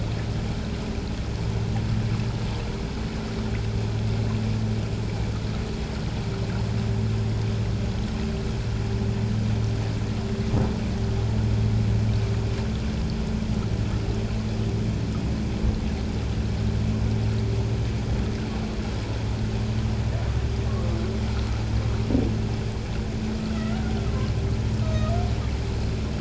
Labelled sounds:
24.8	25.1	humpback whale, 1.2 to 1.3 kHz

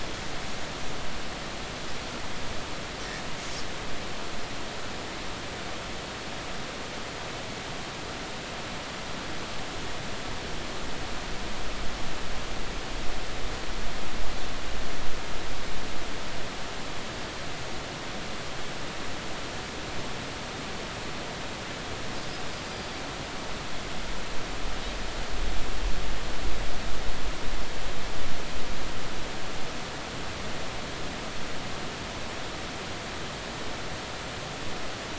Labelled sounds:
22.6	22.9	Pacific white-sided dolphin, 4.7 to 4.9 kHz

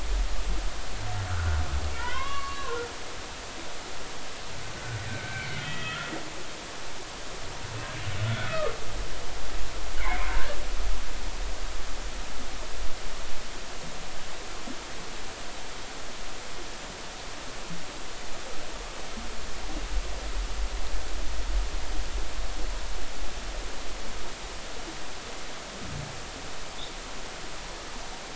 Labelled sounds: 1.3	2.8	humpback whale, 0.90 to 4.5 kHz
5.1	6.1	humpback whale, 1.2 to 3.4 kHz
8.2	8.7	humpback whale, 1.1 to 1.6 kHz
10.0	10.6	humpback whale, 1.5 to 2.3 kHz

